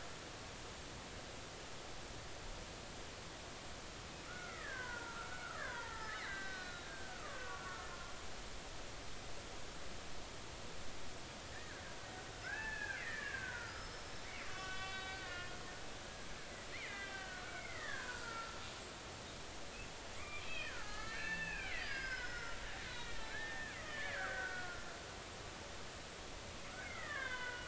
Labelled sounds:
4.3	7.9	killer whale, Bigg's (transient), 0.83 to 4.3 kHz
11.5	15.5	killer whale, Bigg's (transient), 0.80 to 5.4 kHz
16.7	18.6	killer whale, Bigg's (transient), 0.93 to 3.7 kHz
20.2	24.8	killer whale, Bigg's (transient), 0.80 to 5.3 kHz
26.8	27.6	killer whale, Bigg's (transient), 0.93 to 3.7 kHz

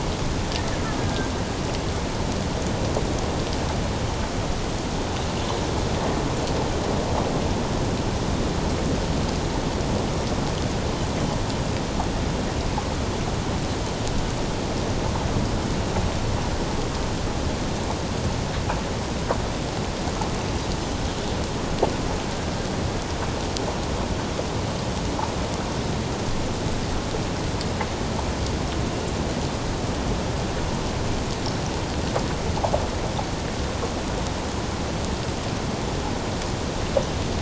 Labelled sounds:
1.0	1.3	killer whale, Bigg's (transient), 1.5 to 1.7 kHz

